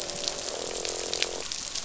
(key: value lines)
label: biophony, croak
recorder: SoundTrap 500